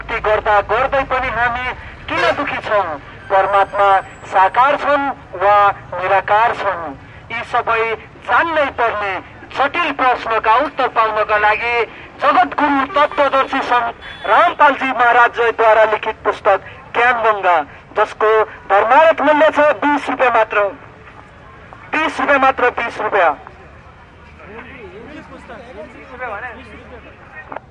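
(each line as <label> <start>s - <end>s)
A person is speaking loudly through a megaphone. 0.0s - 23.5s
A truck horn is beeping. 1.9s - 3.0s
Car horns beep in the distance. 12.2s - 15.3s
Men are chatting in the distance. 24.0s - 27.7s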